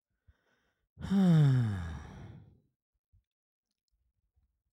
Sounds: Sigh